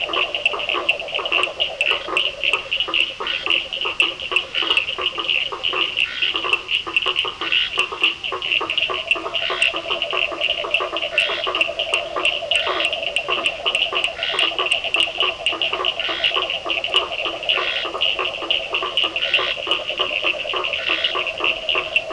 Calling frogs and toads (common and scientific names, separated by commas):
blacksmith tree frog (Boana faber), Cochran's lime tree frog (Sphaenorhynchus surdus), Scinax perereca